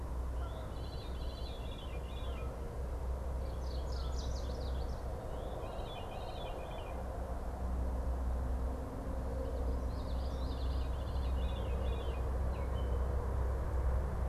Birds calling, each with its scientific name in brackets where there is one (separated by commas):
Chestnut-sided Warbler (Setophaga pensylvanica), Canada Goose (Branta canadensis), Common Yellowthroat (Geothlypis trichas), Veery (Catharus fuscescens)